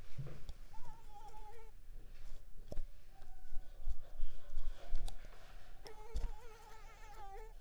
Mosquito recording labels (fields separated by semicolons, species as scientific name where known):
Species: Mansonia uniformis; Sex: female; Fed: unfed; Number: one; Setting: cup